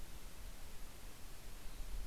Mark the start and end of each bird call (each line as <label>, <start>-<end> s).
Yellow-rumped Warbler (Setophaga coronata), 0.8-2.1 s